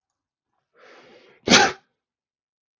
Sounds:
Sneeze